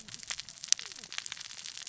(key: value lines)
label: biophony, cascading saw
recorder: SoundTrap 600 or HydroMoth